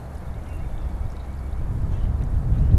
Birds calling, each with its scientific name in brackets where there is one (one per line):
White-breasted Nuthatch (Sitta carolinensis)